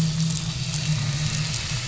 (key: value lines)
label: anthrophony, boat engine
recorder: SoundTrap 500